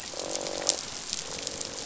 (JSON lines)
{"label": "biophony, croak", "recorder": "SoundTrap 500"}